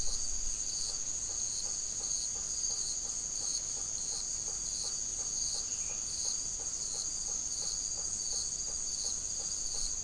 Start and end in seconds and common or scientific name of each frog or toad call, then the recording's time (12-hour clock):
0.0	10.0	blacksmith tree frog
5.6	6.1	Dendropsophus elegans
8:30pm